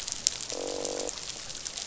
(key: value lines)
label: biophony, croak
recorder: SoundTrap 500